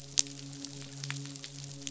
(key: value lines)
label: biophony, midshipman
recorder: SoundTrap 500